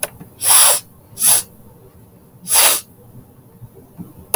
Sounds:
Sniff